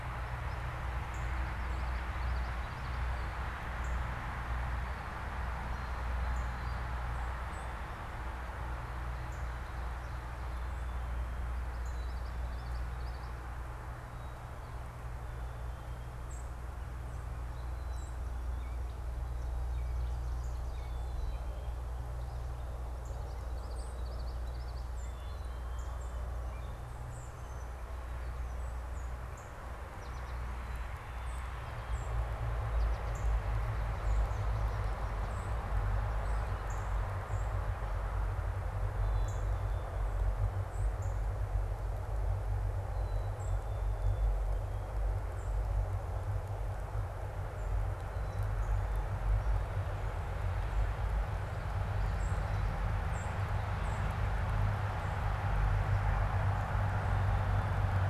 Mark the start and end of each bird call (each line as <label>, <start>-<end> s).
Northern Cardinal (Cardinalis cardinalis), 0.0-12.5 s
Common Yellowthroat (Geothlypis trichas), 1.4-3.2 s
unidentified bird, 5.7-7.1 s
Song Sparrow (Melospiza melodia), 7.4-7.7 s
Common Yellowthroat (Geothlypis trichas), 11.7-13.1 s
Song Sparrow (Melospiza melodia), 16.2-18.5 s
Northern Cardinal (Cardinalis cardinalis), 20.4-20.6 s
Northern Cardinal (Cardinalis cardinalis), 22.7-46.0 s
Common Yellowthroat (Geothlypis trichas), 23.1-25.1 s
Black-capped Chickadee (Poecile atricapillus), 25.2-26.0 s
Gray Catbird (Dumetella carolinensis), 26.4-26.8 s
American Goldfinch (Spinus tristis), 29.7-33.5 s
Black-capped Chickadee (Poecile atricapillus), 33.8-35.1 s
Black-capped Chickadee (Poecile atricapillus), 39.0-44.4 s
Song Sparrow (Melospiza melodia), 47.0-47.3 s
Song Sparrow (Melospiza melodia), 52.2-54.3 s